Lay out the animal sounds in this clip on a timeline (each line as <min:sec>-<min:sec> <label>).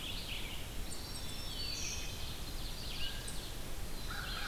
0:00.0-0:04.5 Red-eyed Vireo (Vireo olivaceus)
0:00.0-0:04.5 unknown mammal
0:00.6-0:02.1 Black-throated Green Warbler (Setophaga virens)
0:00.7-0:02.1 Eastern Wood-Pewee (Contopus virens)
0:01.6-0:03.7 Ovenbird (Seiurus aurocapilla)
0:04.0-0:04.5 Black-throated Blue Warbler (Setophaga caerulescens)
0:04.0-0:04.5 American Crow (Corvus brachyrhynchos)